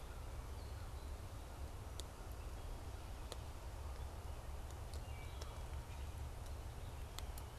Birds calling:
Wood Thrush (Hylocichla mustelina)

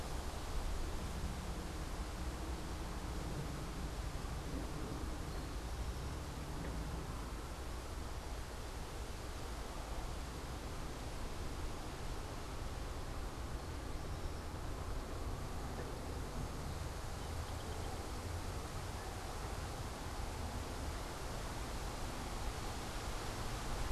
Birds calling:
Eastern Towhee (Pipilo erythrophthalmus), unidentified bird

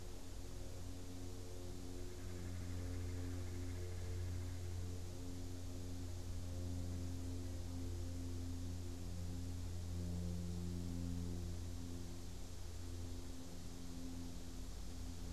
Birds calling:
Red-bellied Woodpecker (Melanerpes carolinus)

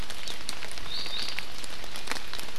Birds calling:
Iiwi (Drepanis coccinea)

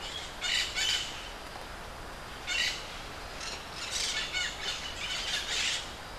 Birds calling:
Crimson-fronted Parakeet (Psittacara finschi)

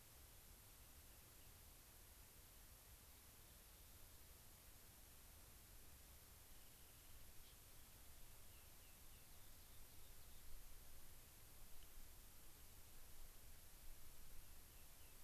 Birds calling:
Rock Wren (Salpinctes obsoletus)

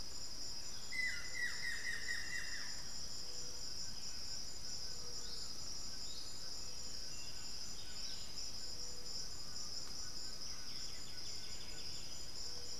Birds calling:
Undulated Tinamou (Crypturellus undulatus), White-throated Toucan (Ramphastos tucanus), Buff-throated Woodcreeper (Xiphorhynchus guttatus), Striped Cuckoo (Tapera naevia), Buff-throated Saltator (Saltator maximus), White-winged Becard (Pachyramphus polychopterus)

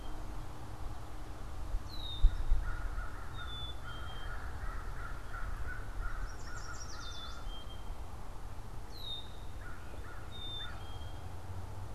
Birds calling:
Black-capped Chickadee (Poecile atricapillus), American Crow (Corvus brachyrhynchos), Red-winged Blackbird (Agelaius phoeniceus), Yellow Warbler (Setophaga petechia)

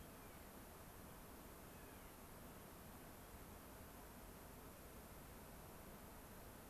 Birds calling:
Clark's Nutcracker (Nucifraga columbiana)

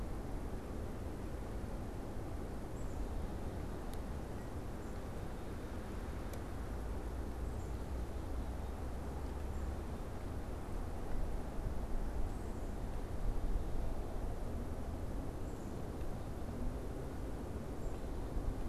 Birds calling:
Black-capped Chickadee (Poecile atricapillus)

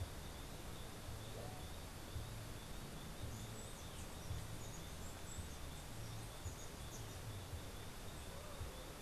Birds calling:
Chestnut-capped Brushfinch (Arremon brunneinucha)

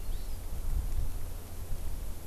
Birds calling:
Hawaii Amakihi (Chlorodrepanis virens)

